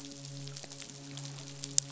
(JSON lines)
{"label": "biophony, midshipman", "recorder": "SoundTrap 500"}